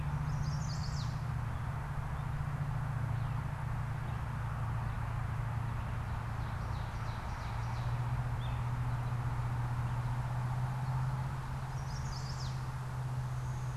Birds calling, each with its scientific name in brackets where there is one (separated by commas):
Ovenbird (Seiurus aurocapilla), Chestnut-sided Warbler (Setophaga pensylvanica), American Robin (Turdus migratorius)